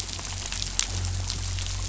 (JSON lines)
{"label": "anthrophony, boat engine", "recorder": "SoundTrap 500"}